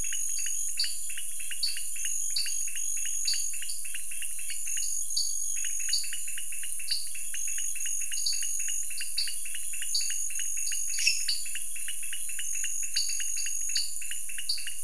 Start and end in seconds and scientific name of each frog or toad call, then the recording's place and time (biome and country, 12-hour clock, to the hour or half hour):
0.0	14.7	Dendropsophus nanus
0.0	14.8	Leptodactylus podicipinus
10.9	11.3	Dendropsophus minutus
Cerrado, Brazil, 7:30pm